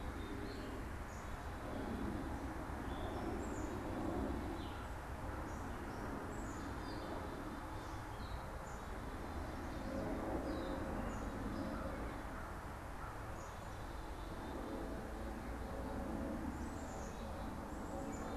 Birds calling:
Gray Catbird (Dumetella carolinensis), Black-capped Chickadee (Poecile atricapillus)

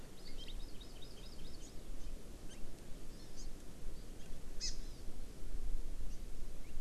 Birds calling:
Hawaii Amakihi (Chlorodrepanis virens)

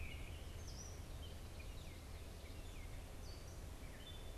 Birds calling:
Gray Catbird (Dumetella carolinensis), Tufted Titmouse (Baeolophus bicolor)

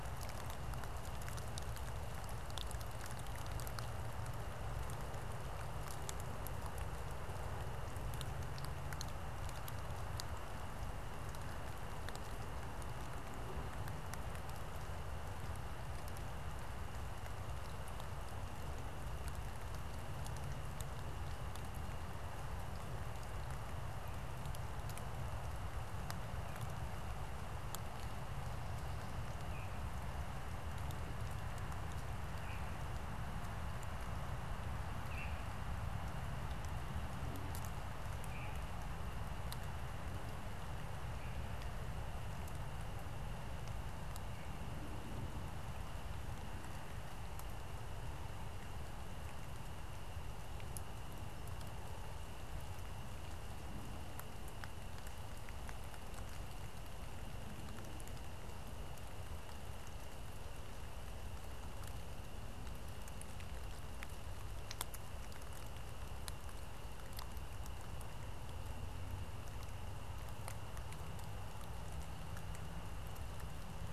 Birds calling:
Veery (Catharus fuscescens)

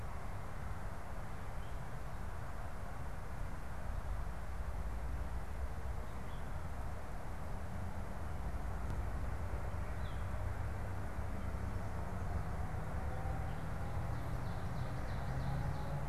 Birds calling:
Ovenbird (Seiurus aurocapilla)

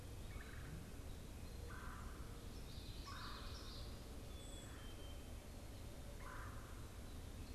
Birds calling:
Common Yellowthroat (Geothlypis trichas), Red-bellied Woodpecker (Melanerpes carolinus), Black-capped Chickadee (Poecile atricapillus), Brown Creeper (Certhia americana)

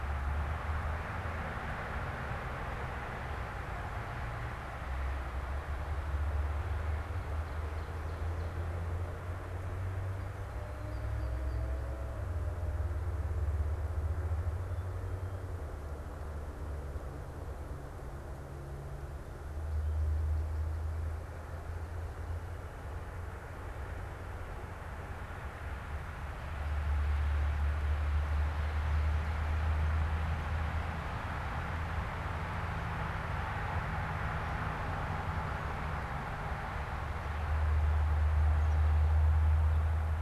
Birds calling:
Ovenbird (Seiurus aurocapilla), unidentified bird

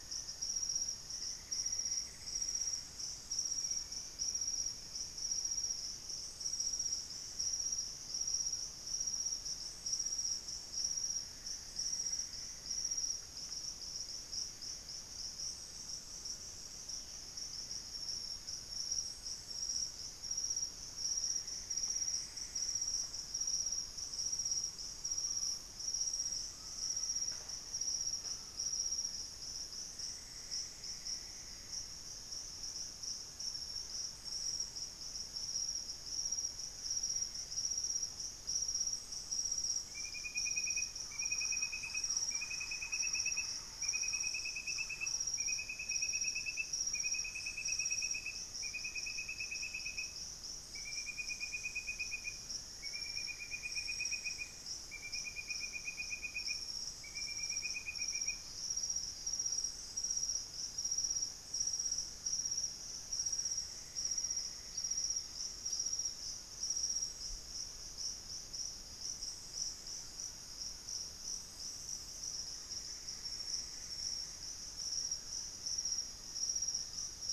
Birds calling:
unidentified bird, Thrush-like Wren (Campylorhynchus turdinus), Screaming Piha (Lipaugus vociferans), Long-winged Antwren (Myrmotherula longipennis), Plain-winged Antshrike (Thamnophilus schistaceus), Plumbeous Antbird (Myrmelastes hyperythrus), Hauxwell's Thrush (Turdus hauxwelli), Black-faced Antthrush (Formicarius analis), White-throated Toucan (Ramphastos tucanus)

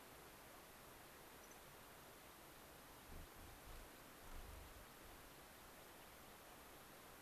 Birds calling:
unidentified bird

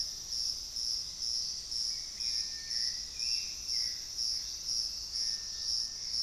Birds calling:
unidentified bird, Gray Antbird (Cercomacra cinerascens), Hauxwell's Thrush (Turdus hauxwelli), Thrush-like Wren (Campylorhynchus turdinus)

